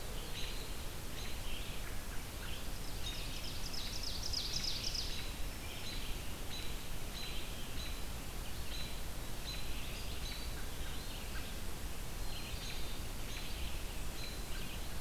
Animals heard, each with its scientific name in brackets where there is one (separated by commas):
Eastern Wood-Pewee (Contopus virens), Ovenbird (Seiurus aurocapilla), Black-throated Green Warbler (Setophaga virens), American Robin (Turdus migratorius), Black-capped Chickadee (Poecile atricapillus), Red-eyed Vireo (Vireo olivaceus)